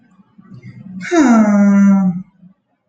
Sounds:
Sigh